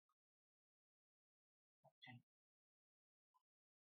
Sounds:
Sneeze